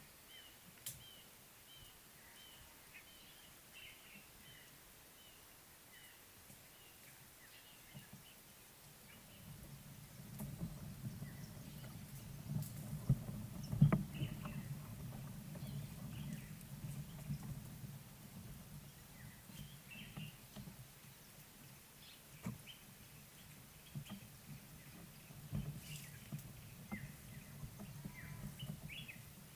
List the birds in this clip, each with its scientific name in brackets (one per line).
Red-fronted Barbet (Tricholaema diademata)